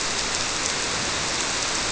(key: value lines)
label: biophony
recorder: SoundTrap 300